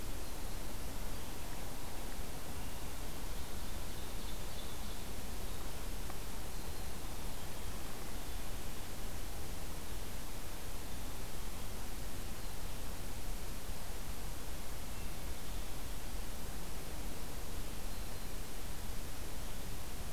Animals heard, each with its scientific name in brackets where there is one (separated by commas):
Ovenbird (Seiurus aurocapilla)